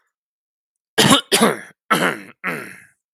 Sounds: Throat clearing